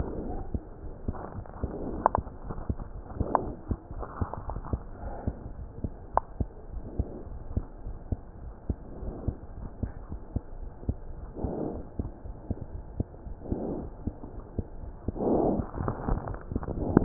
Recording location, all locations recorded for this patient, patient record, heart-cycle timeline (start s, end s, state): aortic valve (AV)
aortic valve (AV)+pulmonary valve (PV)+tricuspid valve (TV)+mitral valve (MV)
#Age: Child
#Sex: Male
#Height: 81.0 cm
#Weight: 10.725 kg
#Pregnancy status: False
#Murmur: Absent
#Murmur locations: nan
#Most audible location: nan
#Systolic murmur timing: nan
#Systolic murmur shape: nan
#Systolic murmur grading: nan
#Systolic murmur pitch: nan
#Systolic murmur quality: nan
#Diastolic murmur timing: nan
#Diastolic murmur shape: nan
#Diastolic murmur grading: nan
#Diastolic murmur pitch: nan
#Diastolic murmur quality: nan
#Outcome: Abnormal
#Campaign: 2015 screening campaign
0.00	0.60	unannotated
0.60	0.82	diastole
0.82	0.95	S1
0.95	1.05	systole
1.05	1.15	S2
1.15	1.36	diastole
1.36	1.47	S1
1.47	1.60	systole
1.60	1.72	S2
1.72	1.96	diastole
1.96	2.92	unannotated
2.92	3.02	S1
3.02	3.12	systole
3.12	3.28	S2
3.28	3.40	diastole
3.40	3.52	S1
3.52	3.67	systole
3.67	3.78	S2
3.78	3.94	diastole
3.94	4.06	S1
4.06	4.17	systole
4.17	4.27	S2
4.27	4.46	diastole
4.46	4.60	S1
4.60	4.69	systole
4.69	4.78	S2
4.78	4.99	diastole
4.99	5.14	S1
5.14	5.24	systole
5.24	5.38	S2
5.38	5.56	diastole
5.56	5.67	S1
5.67	5.80	systole
5.80	5.91	S2
5.91	6.11	diastole
6.11	6.22	S1
6.22	6.37	systole
6.37	6.46	S2
6.46	6.70	diastole
6.70	6.85	S1
6.85	6.96	systole
6.96	7.08	S2
7.08	7.28	diastole
7.28	7.41	S1
7.41	7.54	systole
7.54	7.62	S2
7.62	7.81	diastole
7.81	7.97	S1
7.97	8.09	systole
8.09	8.18	S2
8.18	8.42	diastole
8.42	8.54	S1
8.54	8.66	systole
8.66	8.75	S2
8.75	9.00	diastole
9.00	9.14	S1
9.14	9.22	systole
9.22	9.36	S2
9.36	9.63	diastole
9.63	17.04	unannotated